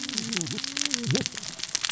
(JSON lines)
{"label": "biophony, cascading saw", "recorder": "SoundTrap 600 or HydroMoth"}